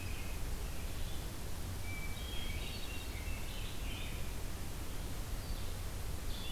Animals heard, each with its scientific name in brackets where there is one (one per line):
Blue-headed Vireo (Vireo solitarius)
American Robin (Turdus migratorius)
Hermit Thrush (Catharus guttatus)